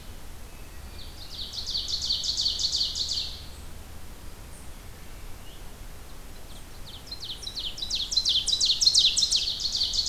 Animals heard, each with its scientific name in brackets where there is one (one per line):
Ovenbird (Seiurus aurocapilla)
Hermit Thrush (Catharus guttatus)